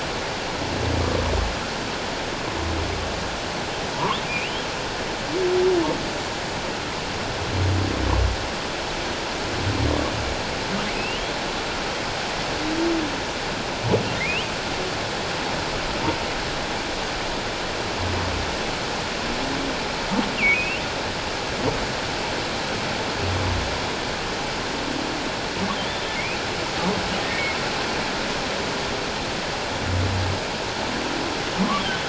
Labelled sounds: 4.3	4.6	humpback whale, 2.2 to 3.3 kHz
10.9	11.2	humpback whale, 2.4 to 3.1 kHz
14.2	14.5	humpback whale, 1.8 to 3.2 kHz
20.5	20.8	humpback whale, 2.4 to 3.2 kHz
26.1	26.4	humpback whale, 2.1 to 2.7 kHz
27.3	27.6	humpback whale, 2.1 to 2.3 kHz

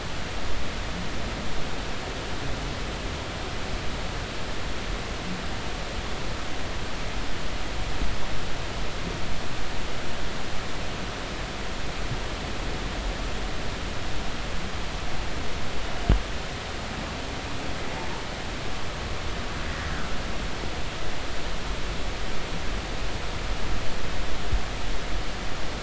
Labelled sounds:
19.7	19.9	humpback whale, 1.8 to 2.0 kHz

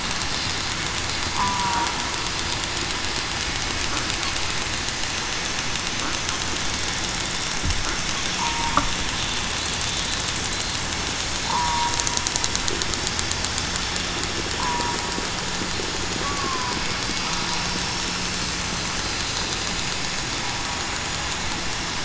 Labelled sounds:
1.3	1.9	killer whale, southern resident, 0.84 to 1.1 kHz
8.4	8.8	killer whale, southern resident, 0.89 to 1.1 kHz
11.5	11.9	killer whale, southern resident, 0.87 to 1.1 kHz
14.6	15.0	killer whale, southern resident, 0.89 to 1.1 kHz
16.2	16.8	killer whale, southern resident, 0.96 to 1.2 kHz

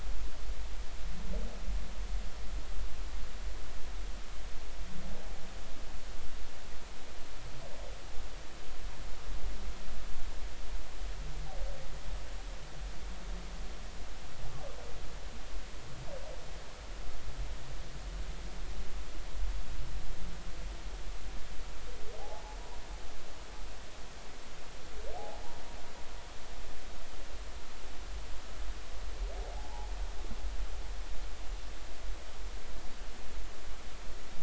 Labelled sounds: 22.2	22.4	humpback whale, 0.80 to 0.93 kHz
25.2	25.4	humpback whale, 0.80 to 0.96 kHz
29.5	29.9	humpback whale, 0.80 to 0.99 kHz

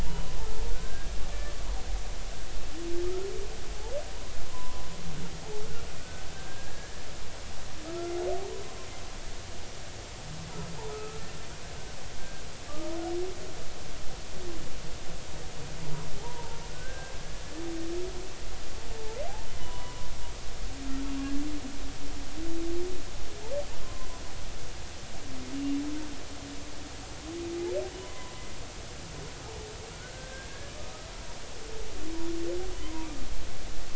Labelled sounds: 0.0	1.1	humpback whale, 0.90 to 1.7 kHz
4.5	4.9	humpback whale, 0.93 to 1.1 kHz
6.0	7.0	humpback whale, 1.4 to 1.8 kHz
7.9	8.1	humpback whale, 1.2 to 1.4 kHz
10.9	11.3	humpback whale, 1.2 to 1.4 kHz
12.2	12.9	humpback whale, 1.1 to 1.6 kHz
16.2	17.1	humpback whale, 0.80 to 1.7 kHz
18.9	20.1	humpback whale, 0.83 to 3.1 kHz
23.8	24.1	humpback whale, 0.96 to 1.1 kHz
28.0	28.4	humpback whale, 0.93 to 1.1 kHz
29.9	30.7	humpback whale, 1.4 to 1.8 kHz
32.8	33.1	humpback whale, 0.90 to 1.1 kHz

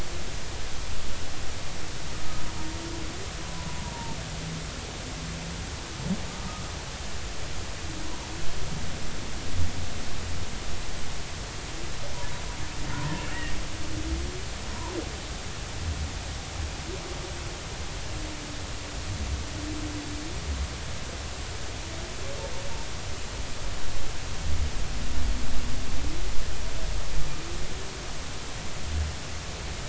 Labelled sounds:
3.4	4.2	humpback whale, 0.86 to 1.1 kHz
6.4	6.6	humpback whale, 1.2 to 1.3 kHz
8.0	8.3	humpback whale, 0.83 to 1.1 kHz

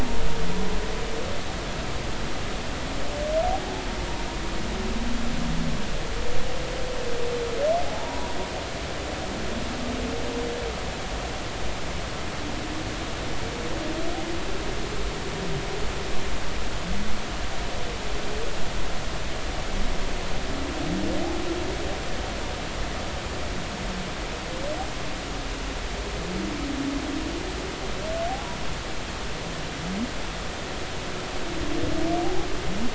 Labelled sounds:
7.9	8.3	humpback whale, 0.80 to 1.0 kHz

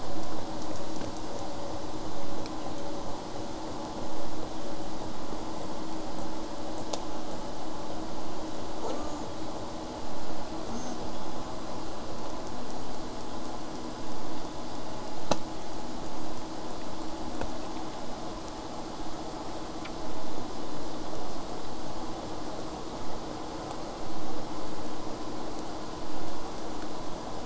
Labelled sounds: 8.8	9.3	killer whale, southern resident, J pod, call S04, 0.35 to 8.0 kHz
10.7	11.0	killer whale, southern resident, J pod, call S04, 0.81 to 8.0 kHz
20.0	25.0	vessel noise, 0 to 8.0 kHz

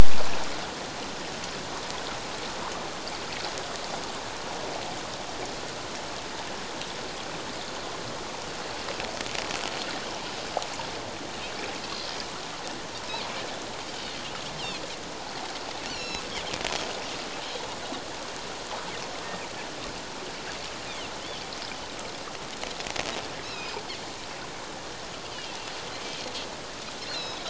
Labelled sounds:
15.9	16.2	Pacific white-sided dolphin, 2.6 to 7.1 kHz
23.4	23.8	Pacific white-sided dolphin, 2.4 to 5.5 kHz
25.3	25.6	Pacific white-sided dolphin, 2.6 to 3.2 kHz
27.0	27.4	Pacific white-sided dolphin, 2.5 to 4.4 kHz

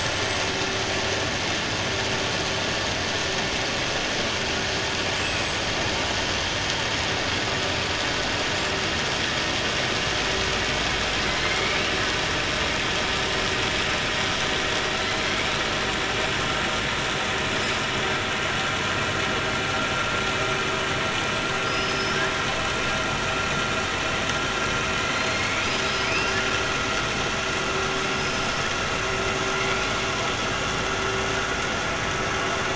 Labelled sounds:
11.3	11.9	killer whale, 1.2 to 3.0 kHz
21.6	22.2	killer whale, 4.6 to 6.2 kHz
25.3	26.5	killer whale, 1.7 to 5.9 kHz
28.1	28.7	killer whale, 4.7 to 6.1 kHz

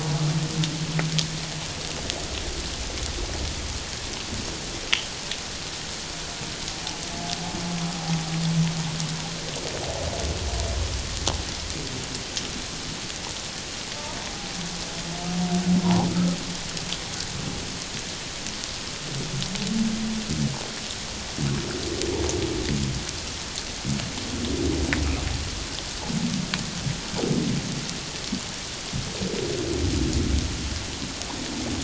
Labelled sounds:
15.8	16.1	humpback whale, 0.78 to 1.1 kHz

